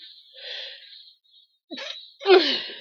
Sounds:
Sneeze